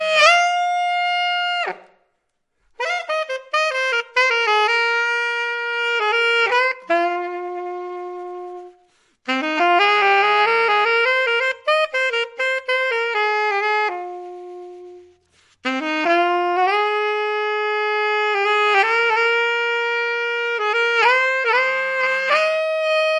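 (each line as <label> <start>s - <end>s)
A saxophone plays. 0.0s - 1.8s
A saxophone plays. 2.8s - 8.7s
A saxophone plays. 9.3s - 14.1s
A saxophone plays. 15.6s - 23.2s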